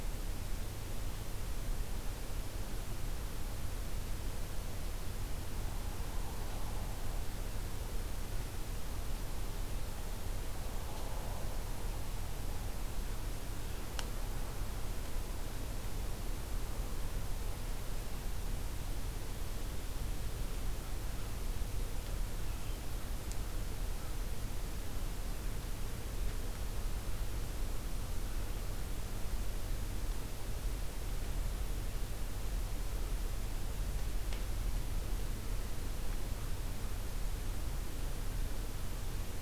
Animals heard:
forest ambience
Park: Acadia National Park